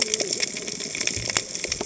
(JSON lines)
{"label": "biophony, cascading saw", "recorder": "HydroMoth"}